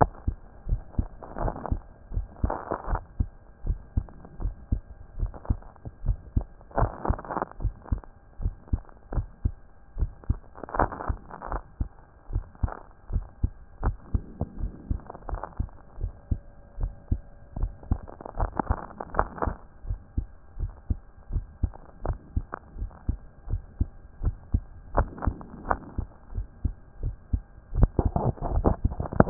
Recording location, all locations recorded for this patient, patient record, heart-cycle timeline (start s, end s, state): mitral valve (MV)
aortic valve (AV)+pulmonary valve (PV)+tricuspid valve (TV)+mitral valve (MV)
#Age: Child
#Sex: Male
#Height: 159.0 cm
#Weight: 38.2 kg
#Pregnancy status: False
#Murmur: Absent
#Murmur locations: nan
#Most audible location: nan
#Systolic murmur timing: nan
#Systolic murmur shape: nan
#Systolic murmur grading: nan
#Systolic murmur pitch: nan
#Systolic murmur quality: nan
#Diastolic murmur timing: nan
#Diastolic murmur shape: nan
#Diastolic murmur grading: nan
#Diastolic murmur pitch: nan
#Diastolic murmur quality: nan
#Outcome: Normal
#Campaign: 2014 screening campaign
0.00	2.79	unannotated
2.79	2.88	diastole
2.88	3.02	S1
3.02	3.18	systole
3.18	3.28	S2
3.28	3.66	diastole
3.66	3.78	S1
3.78	3.96	systole
3.96	4.06	S2
4.06	4.42	diastole
4.42	4.54	S1
4.54	4.70	systole
4.70	4.80	S2
4.80	5.18	diastole
5.18	5.32	S1
5.32	5.48	systole
5.48	5.58	S2
5.58	6.04	diastole
6.04	6.18	S1
6.18	6.34	systole
6.34	6.44	S2
6.44	6.78	diastole
6.78	6.92	S1
6.92	7.08	systole
7.08	7.18	S2
7.18	7.62	diastole
7.62	7.74	S1
7.74	7.90	systole
7.90	8.00	S2
8.00	8.42	diastole
8.42	8.54	S1
8.54	8.72	systole
8.72	8.80	S2
8.80	9.14	diastole
9.14	9.26	S1
9.26	9.44	systole
9.44	9.54	S2
9.54	9.98	diastole
9.98	10.10	S1
10.10	10.28	systole
10.28	10.38	S2
10.38	10.78	diastole
10.78	10.90	S1
10.90	11.08	systole
11.08	11.18	S2
11.18	11.50	diastole
11.50	11.62	S1
11.62	11.78	systole
11.78	11.88	S2
11.88	12.32	diastole
12.32	12.44	S1
12.44	12.62	systole
12.62	12.72	S2
12.72	13.12	diastole
13.12	13.24	S1
13.24	13.42	systole
13.42	13.52	S2
13.52	13.84	diastole
13.84	13.96	S1
13.96	14.12	systole
14.12	14.22	S2
14.22	14.60	diastole
14.60	14.72	S1
14.72	14.90	systole
14.90	15.00	S2
15.00	15.30	diastole
15.30	15.42	S1
15.42	15.58	systole
15.58	15.68	S2
15.68	16.00	diastole
16.00	16.12	S1
16.12	16.30	systole
16.30	16.40	S2
16.40	16.80	diastole
16.80	16.92	S1
16.92	17.10	systole
17.10	17.20	S2
17.20	17.58	diastole
17.58	17.72	S1
17.72	17.90	systole
17.90	18.00	S2
18.00	18.38	diastole
18.38	18.50	S1
18.50	18.68	systole
18.68	18.78	S2
18.78	19.16	diastole
19.16	19.28	S1
19.28	19.44	systole
19.44	19.56	S2
19.56	19.88	diastole
19.88	20.00	S1
20.00	20.16	systole
20.16	20.26	S2
20.26	20.60	diastole
20.60	20.72	S1
20.72	20.88	systole
20.88	20.98	S2
20.98	21.32	diastole
21.32	21.44	S1
21.44	21.62	systole
21.62	21.72	S2
21.72	22.06	diastole
22.06	22.18	S1
22.18	22.34	systole
22.34	22.46	S2
22.46	22.78	diastole
22.78	22.90	S1
22.90	23.08	systole
23.08	23.18	S2
23.18	23.50	diastole
23.50	23.62	S1
23.62	23.78	systole
23.78	23.88	S2
23.88	24.22	diastole
24.22	24.36	S1
24.36	24.52	systole
24.52	24.62	S2
24.62	24.96	diastole
24.96	25.08	S1
25.08	25.26	systole
25.26	25.36	S2
25.36	25.68	diastole
25.68	25.80	S1
25.80	25.96	systole
25.96	26.06	S2
26.06	26.34	diastole
26.34	26.46	S1
26.46	26.64	systole
26.64	26.74	S2
26.74	27.02	diastole
27.02	27.16	S1
27.16	27.32	systole
27.32	27.42	S2
27.42	27.74	diastole
27.74	29.30	unannotated